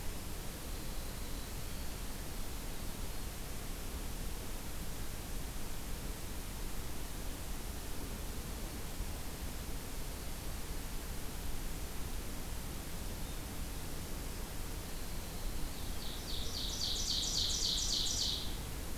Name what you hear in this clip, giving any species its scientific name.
Troglodytes hiemalis, Seiurus aurocapilla